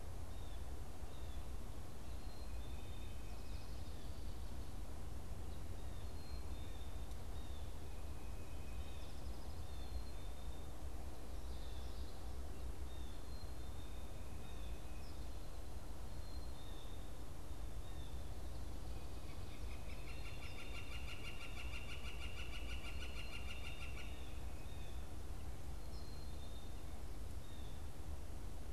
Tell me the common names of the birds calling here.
Blue Jay, Northern Flicker